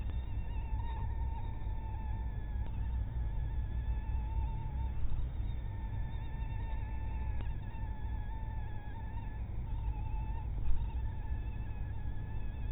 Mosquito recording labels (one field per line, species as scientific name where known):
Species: mosquito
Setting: cup